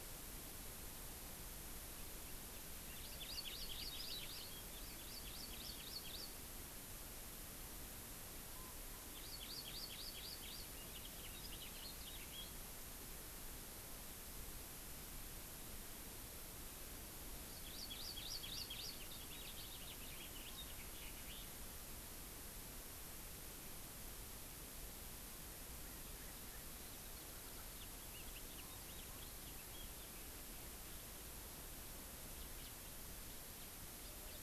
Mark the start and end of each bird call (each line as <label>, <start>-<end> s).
Hawaii Amakihi (Chlorodrepanis virens), 2.8-6.3 s
Hawaii Amakihi (Chlorodrepanis virens), 9.1-10.7 s
House Finch (Haemorhous mexicanus), 10.7-12.7 s
Hawaii Amakihi (Chlorodrepanis virens), 17.4-19.0 s
House Finch (Haemorhous mexicanus), 19.0-21.5 s
House Finch (Haemorhous mexicanus), 27.7-30.1 s